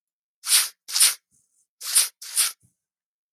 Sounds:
Sniff